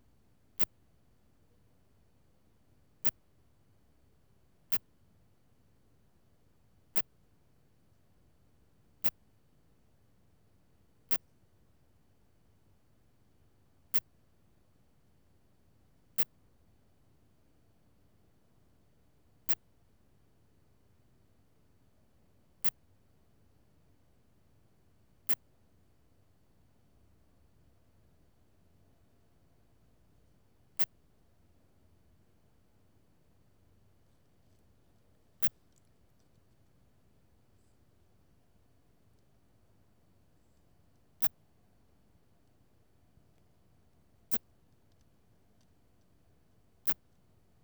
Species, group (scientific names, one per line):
Phaneroptera falcata
Orthoptera